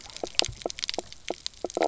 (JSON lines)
{"label": "biophony, knock croak", "recorder": "SoundTrap 300"}